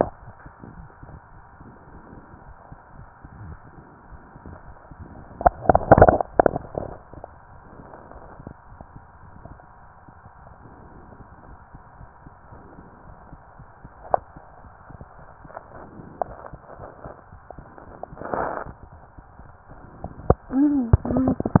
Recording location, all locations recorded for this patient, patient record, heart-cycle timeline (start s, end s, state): tricuspid valve (TV)
pulmonary valve (PV)+tricuspid valve (TV)
#Age: Child
#Sex: Male
#Height: 133.0 cm
#Weight: 40.1 kg
#Pregnancy status: False
#Murmur: Unknown
#Murmur locations: nan
#Most audible location: nan
#Systolic murmur timing: nan
#Systolic murmur shape: nan
#Systolic murmur grading: nan
#Systolic murmur pitch: nan
#Systolic murmur quality: nan
#Diastolic murmur timing: nan
#Diastolic murmur shape: nan
#Diastolic murmur grading: nan
#Diastolic murmur pitch: nan
#Diastolic murmur quality: nan
#Outcome: Normal
#Campaign: 2015 screening campaign
0.00	11.45	unannotated
11.45	11.58	S1
11.58	11.71	systole
11.71	11.80	S2
11.80	11.98	diastole
11.98	12.08	S1
12.08	12.22	systole
12.22	12.32	S2
12.32	12.50	diastole
12.50	12.62	S1
12.62	12.76	systole
12.76	12.86	S2
12.86	13.08	diastole
13.08	13.18	S1
13.18	13.32	systole
13.32	13.42	S2
13.42	13.60	diastole
13.60	13.68	S1
13.68	13.84	systole
13.84	13.90	S2
13.90	14.08	diastole
14.08	14.22	S1
14.22	14.33	systole
14.33	14.42	S2
14.42	14.62	diastole
14.62	14.72	S1
14.72	14.84	systole
14.84	15.00	S2
15.00	15.16	diastole
15.16	15.28	S1
15.28	15.41	systole
15.41	15.54	S2
15.54	15.72	diastole
15.72	15.86	S1
15.86	15.96	systole
15.96	16.08	S2
16.08	16.26	diastole
16.26	16.38	S1
16.38	21.60	unannotated